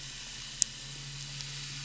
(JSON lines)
{"label": "anthrophony, boat engine", "recorder": "SoundTrap 500"}